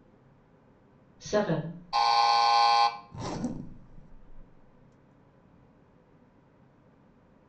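At 1.17 seconds, someone says "Seven." Then at 1.92 seconds, an alarm can be heard. Next, at 3.11 seconds, the sound of a zipper is heard. A soft background noise continues.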